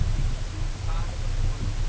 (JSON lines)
{"label": "ambient", "recorder": "HydroMoth"}